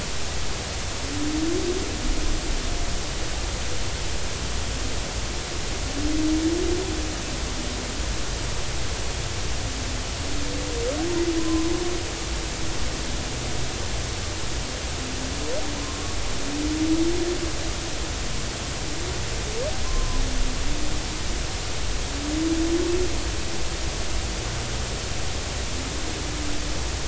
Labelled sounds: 11.4	11.7	humpback whale, 0.96 to 1.1 kHz
15.8	16.2	humpback whale, 0.99 to 1.2 kHz
19.8	20.2	humpback whale, 0.96 to 1.1 kHz

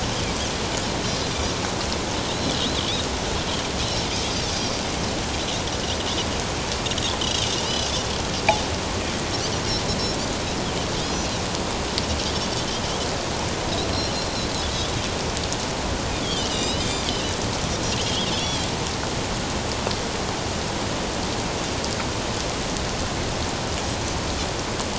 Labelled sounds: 4.5	4.8	Pacific white-sided dolphin, 4.5 to 5.0 kHz
7.6	7.9	Pacific white-sided dolphin, 4.7 to 5.1 kHz
16.1	17.3	Pacific white-sided dolphin, 2.8 to 5.2 kHz
18.0	18.7	Pacific white-sided dolphin, 2.8 to 3.7 kHz

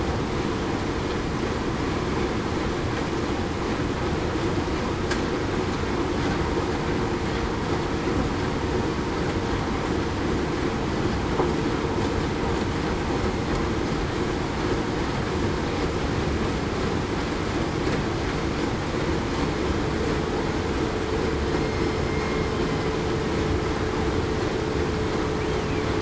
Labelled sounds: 22.1	22.5	killer whale, southern resident, 2.1 to 2.2 kHz

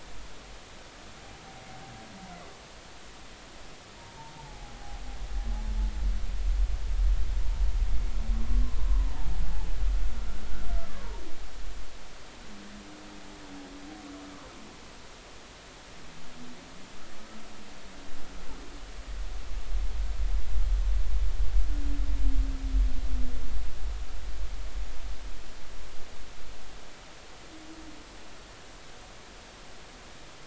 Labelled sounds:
4.0	5.0	humpback whale, 0.80 to 0.99 kHz

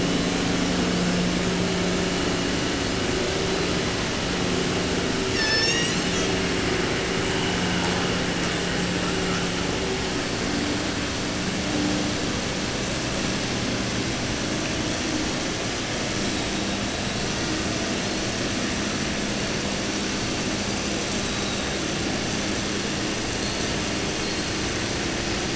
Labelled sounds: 0.0	0.5	killer whale, 3.3 to 8.0 kHz
3.5	3.9	killer whale, 3.7 to 8.0 kHz
5.3	6.3	killer whale, southern resident, J pod, call S01, 0.30 to 8.0 kHz
21.2	21.9	killer whale, 3.1 to 4.3 kHz
23.3	23.7	killer whale, 3.9 to 4.5 kHz
24.2	24.5	killer whale, 3.9 to 4.9 kHz

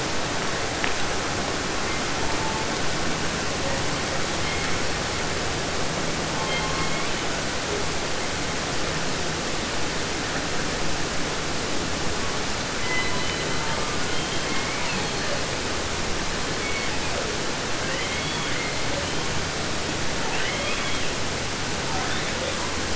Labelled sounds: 1.8	2.7	killer whale, 0.62 to 2.4 kHz
3.6	3.8	killer whale, 0.36 to 2.1 kHz
4.4	4.9	killer whale, 0.95 to 4.7 kHz
6.3	7.4	killer whale, southern resident, J pod, call S01, 0.50 to 5.6 kHz
12.8	15.5	killer whale, southern resident, 0.50 to 4.9 kHz
16.5	17.4	killer whale, southern resident, J pod, call S01, 0.25 to 5.1 kHz
17.8	19.4	killer whale, southern resident, 0.50 to 4.9 kHz
20.1	21.2	killer whale, southern resident, J pod, call S44, 0.50 to 6.0 kHz
21.7	22.6	killer whale, 0.24 to 4.1 kHz

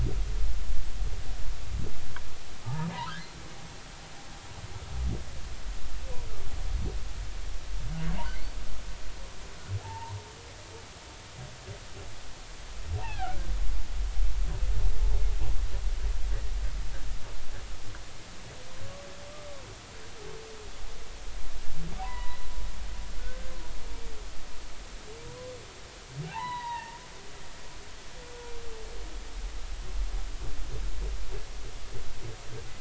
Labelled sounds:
2.6	2.9	humpback whale, 0.80 to 1.3 kHz
9.8	10.2	humpback whale, 0.80 to 1.1 kHz
13.0	13.4	humpback whale, 0.80 to 3.5 kHz
22.0	23.5	humpback whale, 0.90 to 4.0 kHz
26.3	27.0	humpback whale, 0.80 to 4.0 kHz

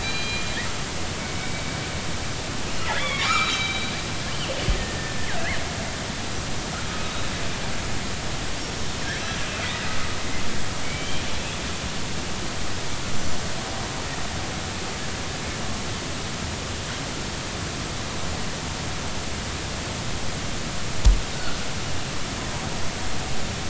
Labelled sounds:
0.0	0.5	killer whale, northern resident, G clan, 2.3 to 4.9 kHz
2.8	5.3	killer whale, northern resident, G clan, 1.1 to 4.1 kHz
9.6	10.0	killer whale, northern resident, G clan, 1.9 to 2.1 kHz
10.8	11.2	killer whale, northern resident, G clan, 2.2 to 3.3 kHz

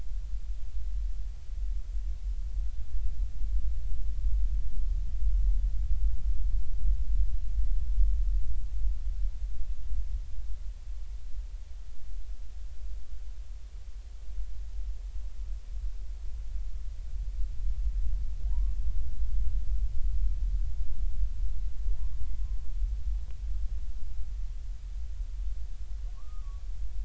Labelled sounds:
18.5	18.8	humpback whale, 0.83 to 1.2 kHz
26.1	26.6	humpback whale, 0.96 to 1.3 kHz

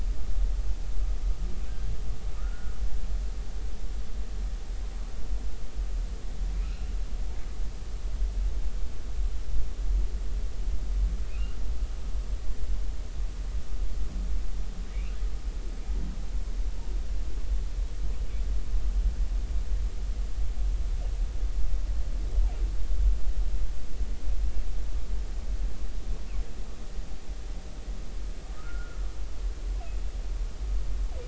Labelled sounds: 2.4	2.7	humpback whale, 1.2 to 1.5 kHz
6.6	6.9	humpback whale, 1.2 to 2.9 kHz
11.2	11.6	humpback whale, 2.4 to 2.9 kHz
28.5	29.0	humpback whale, 1.2 to 1.5 kHz

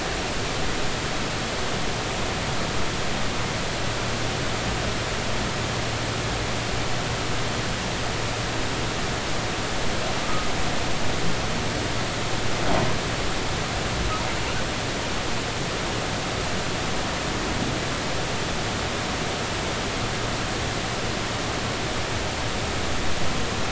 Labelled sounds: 10.2	10.5	humpback whale, 1.2 to 1.3 kHz

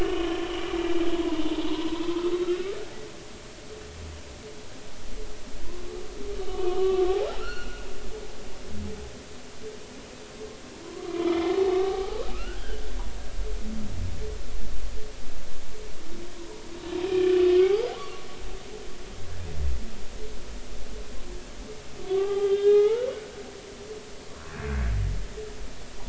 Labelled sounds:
0.0	0.4	humpback whale, 2.8 to 3.2 kHz
1.4	2.3	humpback whale, 0.83 to 3.6 kHz
6.4	7.1	humpback whale, 1.0 to 3.1 kHz
7.4	7.9	humpback whale, 1.2 to 4.5 kHz
10.7	12.9	humpback whale, 0.80 to 3.6 kHz
17.1	18.3	humpback whale, 0.80 to 2.5 kHz
22.1	23.1	humpback whale, 0.80 to 3.7 kHz
24.5	24.9	humpback whale, 1.5 to 2.6 kHz

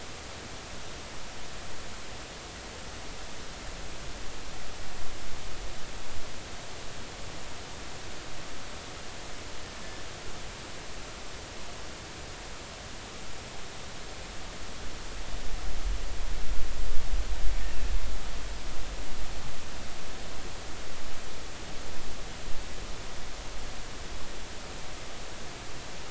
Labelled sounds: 17.6	17.9	killer whale, 2.5 to 2.8 kHz

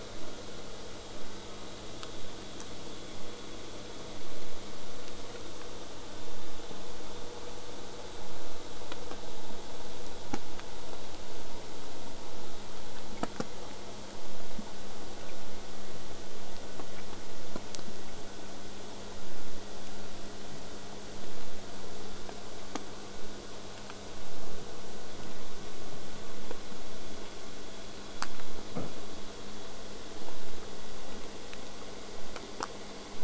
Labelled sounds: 1.1	1.6	killer whale, southern resident, J pod, call S04, 0.23 to 1.8 kHz

